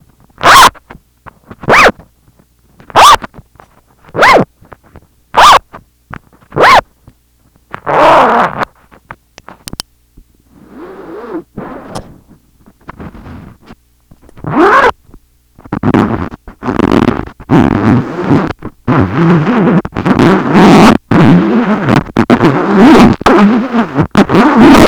Is there multiple zippers being zipped up?
yes